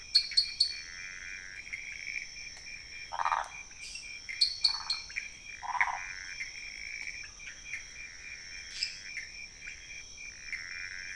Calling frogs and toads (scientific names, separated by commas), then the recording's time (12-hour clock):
Dendropsophus nanus, Pithecopus azureus, Phyllomedusa sauvagii, Dendropsophus minutus, Leptodactylus podicipinus
12:45am